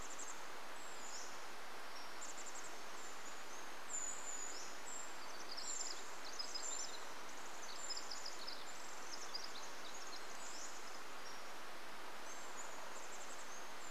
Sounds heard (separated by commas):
Pacific-slope Flycatcher song, Pacific Wren song, Chestnut-backed Chickadee call, Brown Creeper call